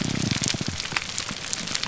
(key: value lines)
label: biophony, grouper groan
recorder: SoundTrap 300